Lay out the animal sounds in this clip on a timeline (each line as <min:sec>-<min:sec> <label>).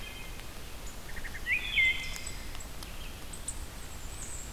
0:00.0-0:04.5 unknown mammal
0:01.0-0:02.4 Wood Thrush (Hylocichla mustelina)
0:02.7-0:04.5 Red-eyed Vireo (Vireo olivaceus)
0:03.7-0:04.5 Bay-breasted Warbler (Setophaga castanea)